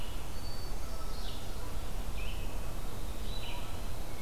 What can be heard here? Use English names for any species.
Red-eyed Vireo, Hermit Thrush